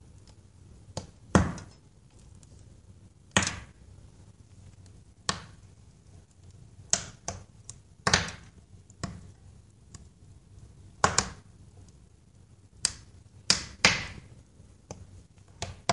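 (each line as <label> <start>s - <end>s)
Firewood is cracking. 0.9s - 1.7s
Firewood is cracking. 3.3s - 3.6s
Firewood is cracking. 5.3s - 5.4s
Firewood is cracking. 6.9s - 9.1s
Firewood is cracking. 9.9s - 10.0s
Firewood is cracking. 11.0s - 11.3s
Firewood is cracking. 12.8s - 15.9s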